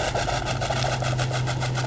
{"label": "anthrophony, boat engine", "recorder": "SoundTrap 500"}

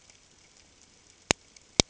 {"label": "ambient", "recorder": "HydroMoth"}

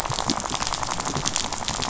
{"label": "biophony, rattle", "recorder": "SoundTrap 500"}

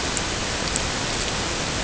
{"label": "ambient", "recorder": "HydroMoth"}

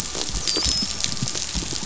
{"label": "biophony, dolphin", "recorder": "SoundTrap 500"}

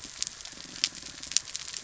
{"label": "biophony", "recorder": "SoundTrap 300"}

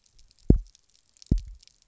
{"label": "biophony, double pulse", "recorder": "SoundTrap 300"}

